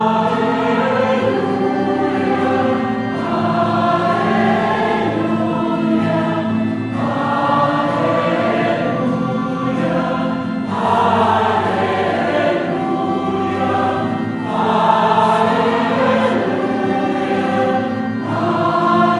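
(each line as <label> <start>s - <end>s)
People sing a prayer loudly in chorus repeatedly. 0.0s - 19.2s
An organ repeatedly plays different notes loudly in a church. 0.0s - 19.2s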